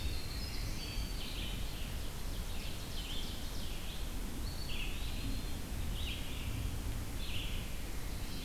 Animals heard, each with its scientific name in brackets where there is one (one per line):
Ovenbird (Seiurus aurocapilla)
Winter Wren (Troglodytes hiemalis)
Red-eyed Vireo (Vireo olivaceus)
Eastern Wood-Pewee (Contopus virens)